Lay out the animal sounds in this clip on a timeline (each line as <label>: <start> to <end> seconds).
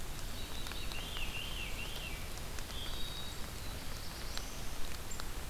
Veery (Catharus fuscescens): 0.2 to 2.3 seconds
Wood Thrush (Hylocichla mustelina): 2.6 to 3.5 seconds
Black-throated Blue Warbler (Setophaga caerulescens): 3.3 to 4.9 seconds